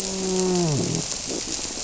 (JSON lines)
{"label": "biophony, grouper", "recorder": "SoundTrap 300"}